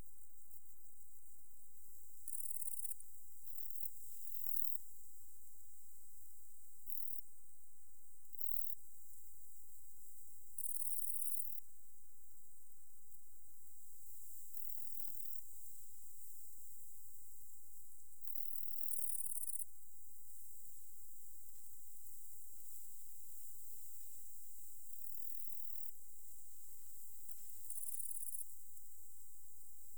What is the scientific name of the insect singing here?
Saga hellenica